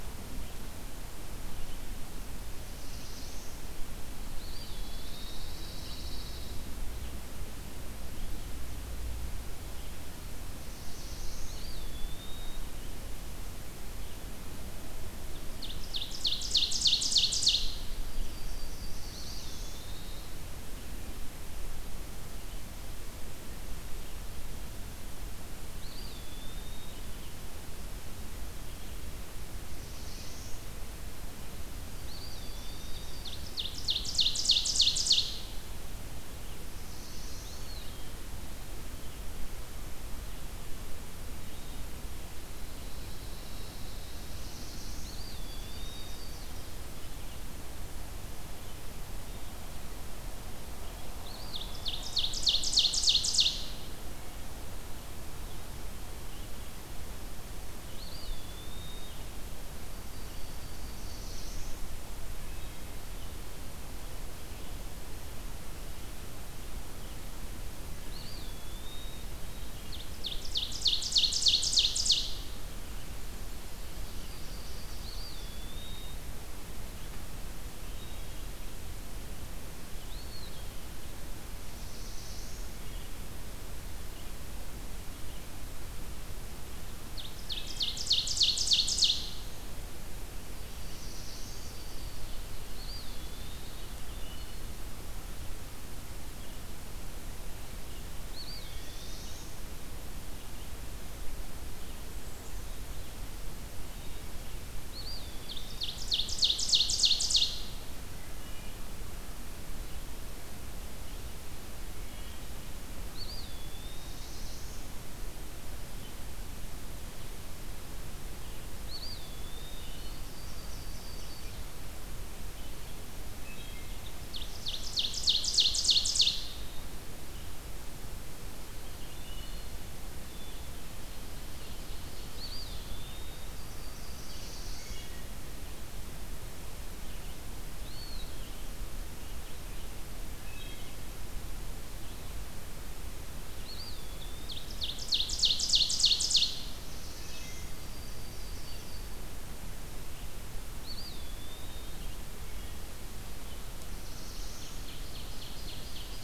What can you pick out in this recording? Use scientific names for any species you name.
Setophaga caerulescens, Contopus virens, Setophaga pinus, Seiurus aurocapilla, Setophaga coronata, Vireo olivaceus, Hylocichla mustelina, Poecile atricapillus